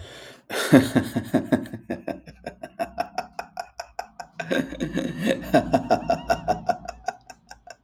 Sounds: Laughter